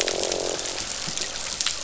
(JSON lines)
{"label": "biophony, croak", "recorder": "SoundTrap 500"}